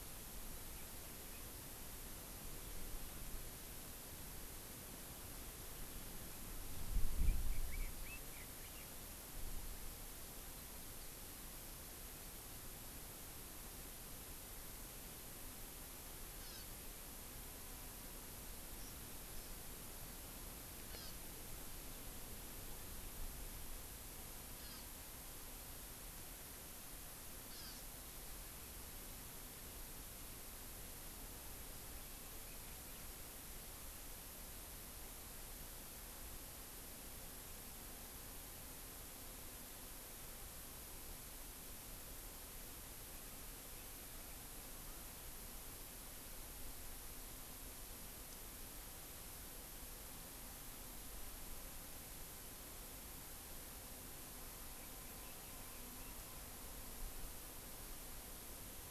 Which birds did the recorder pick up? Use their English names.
Red-billed Leiothrix, Hawaii Amakihi